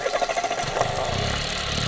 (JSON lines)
{"label": "anthrophony, boat engine", "recorder": "SoundTrap 300"}